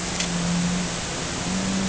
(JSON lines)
{"label": "anthrophony, boat engine", "recorder": "HydroMoth"}